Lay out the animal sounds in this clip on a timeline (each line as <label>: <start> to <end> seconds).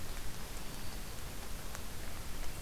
Black-throated Green Warbler (Setophaga virens): 0.1 to 1.2 seconds